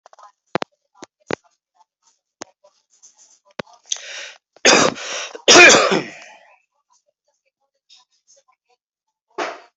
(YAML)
expert_labels:
- quality: good
  cough_type: dry
  dyspnea: false
  wheezing: false
  stridor: false
  choking: false
  congestion: false
  nothing: true
  diagnosis: healthy cough
  severity: pseudocough/healthy cough
age: 39
gender: male
respiratory_condition: false
fever_muscle_pain: false
status: healthy